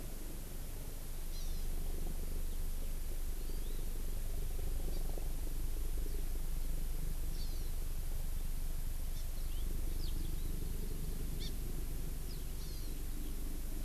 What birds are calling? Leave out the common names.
Chlorodrepanis virens, Alauda arvensis